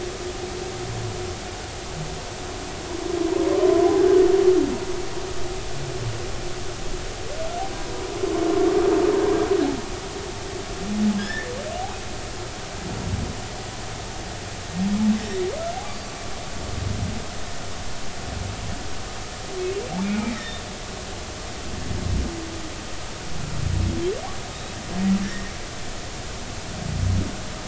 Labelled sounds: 11.2	11.5	humpback whale, 1.6 to 3.8 kHz
20.0	20.6	humpback whale, 1.8 to 3.9 kHz
24.5	24.8	humpback whale, 3.6 to 3.9 kHz

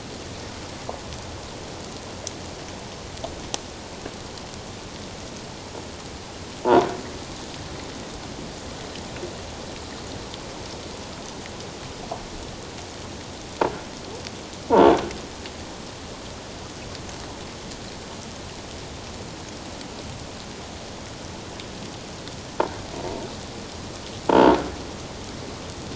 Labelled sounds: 24.3	24.5	croaking sound likely from a nearby submerged object, 0.84 to 1.0 kHz

